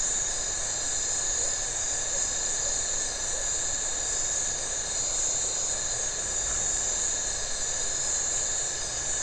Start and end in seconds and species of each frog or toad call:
6.4	6.6	Phyllomedusa distincta
~8pm

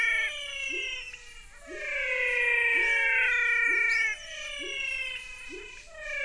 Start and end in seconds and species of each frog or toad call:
0.0	6.2	menwig frog
0.5	6.2	pepper frog
6:30pm

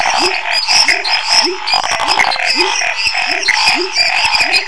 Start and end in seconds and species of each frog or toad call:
0.0	4.6	Chaco tree frog
0.0	4.6	pepper frog
0.0	4.6	Scinax fuscovarius
1.4	1.6	rufous frog
1.8	3.3	menwig frog
3.4	3.6	Pithecopus azureus
~9pm

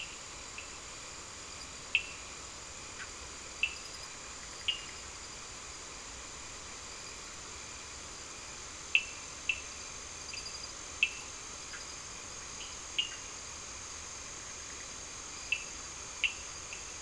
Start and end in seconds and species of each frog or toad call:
0.0	5.1	Cochran's lime tree frog
3.0	3.1	Bischoff's tree frog
8.8	17.0	Cochran's lime tree frog
9pm

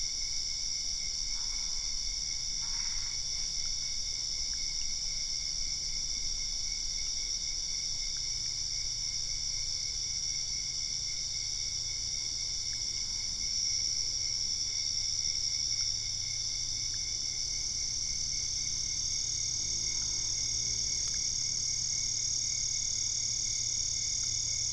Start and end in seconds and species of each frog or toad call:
1.2	3.3	Boana albopunctata
9:30pm

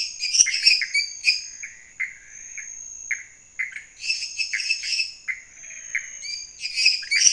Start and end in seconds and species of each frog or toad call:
0.0	1.5	lesser tree frog
0.0	6.0	Pithecopus azureus
3.9	5.3	lesser tree frog
5.3	6.5	menwig frog
6.5	7.3	lesser tree frog
11:30pm

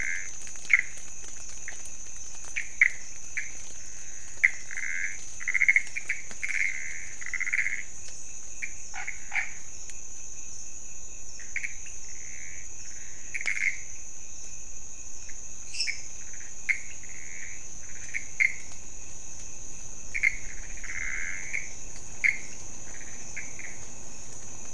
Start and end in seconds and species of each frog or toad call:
0.0	24.7	Pithecopus azureus
11.8	12.0	pointedbelly frog
15.7	16.3	lesser tree frog
2am

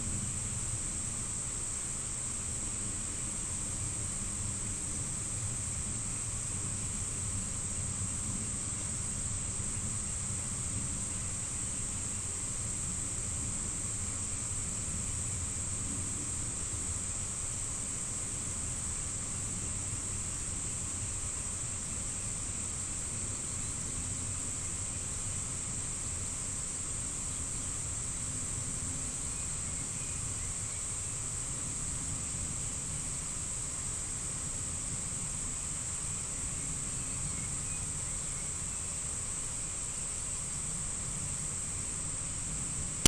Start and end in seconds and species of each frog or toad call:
none
6:30pm

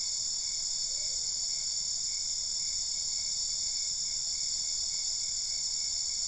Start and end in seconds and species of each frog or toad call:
none
~11pm

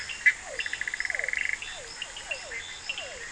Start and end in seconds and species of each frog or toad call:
0.0	2.0	Bischoff's tree frog
0.0	3.3	Cochran's lime tree frog
0.3	3.3	Physalaemus cuvieri
10:30pm

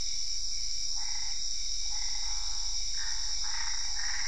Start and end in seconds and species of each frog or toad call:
1.0	4.2	Boana albopunctata
~10pm

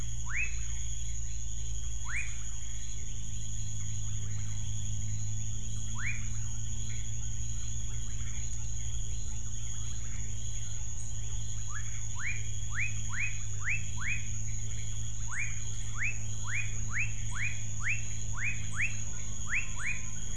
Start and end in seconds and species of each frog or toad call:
0.1	0.7	rufous frog
2.0	2.4	rufous frog
5.8	6.4	rufous frog
11.6	20.3	rufous frog
7pm

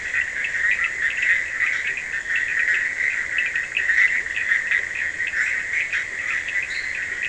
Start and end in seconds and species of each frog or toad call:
0.0	7.2	Bischoff's tree frog
0.0	7.2	Scinax perereca
0.0	7.2	Cochran's lime tree frog
6.5	7.1	fine-lined tree frog
1:30am

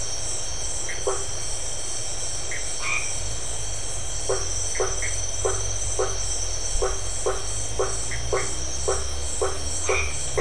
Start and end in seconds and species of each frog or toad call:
0.8	1.0	Dendropsophus elegans
2.4	2.6	Dendropsophus elegans
2.8	3.3	white-edged tree frog
4.2	10.4	blacksmith tree frog
4.7	5.2	Dendropsophus elegans
8.0	8.5	Dendropsophus elegans
9.8	10.4	white-edged tree frog
8pm

